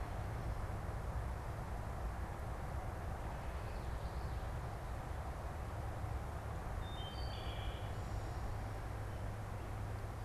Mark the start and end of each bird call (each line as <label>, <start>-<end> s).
Common Yellowthroat (Geothlypis trichas), 3.4-4.3 s
Wood Thrush (Hylocichla mustelina), 6.6-8.2 s